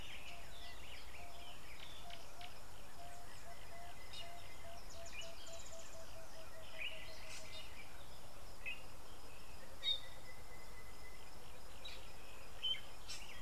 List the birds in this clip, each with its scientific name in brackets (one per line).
Emerald-spotted Wood-Dove (Turtur chalcospilos)